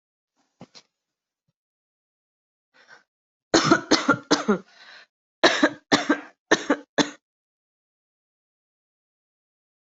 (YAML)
expert_labels:
- quality: good
  cough_type: dry
  dyspnea: false
  wheezing: false
  stridor: false
  choking: false
  congestion: false
  nothing: true
  diagnosis: COVID-19
  severity: mild
age: 27
gender: female
respiratory_condition: true
fever_muscle_pain: false
status: healthy